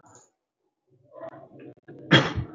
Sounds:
Cough